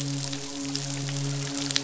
{"label": "biophony, midshipman", "recorder": "SoundTrap 500"}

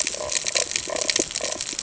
{"label": "ambient", "recorder": "HydroMoth"}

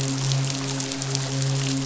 {"label": "biophony, midshipman", "recorder": "SoundTrap 500"}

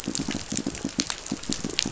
{"label": "biophony, pulse", "recorder": "SoundTrap 500"}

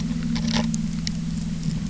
{"label": "anthrophony, boat engine", "recorder": "SoundTrap 300"}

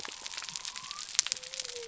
{"label": "biophony", "recorder": "SoundTrap 300"}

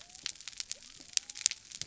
{"label": "biophony", "recorder": "SoundTrap 300"}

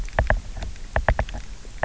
{"label": "biophony, knock", "recorder": "SoundTrap 300"}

